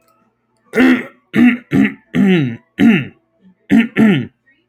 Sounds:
Throat clearing